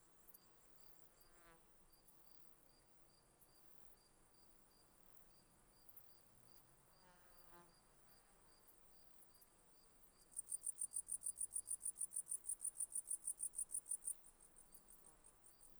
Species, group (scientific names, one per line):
Poecilimon ornatus
Orthoptera